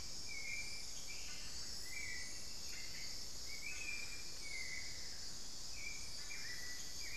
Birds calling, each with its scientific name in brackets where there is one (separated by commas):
Hauxwell's Thrush (Turdus hauxwelli), Amazonian Barred-Woodcreeper (Dendrocolaptes certhia), unidentified bird